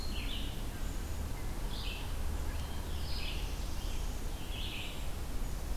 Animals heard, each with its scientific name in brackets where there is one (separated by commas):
Brown Creeper (Certhia americana), Black-throated Blue Warbler (Setophaga caerulescens), Red-eyed Vireo (Vireo olivaceus)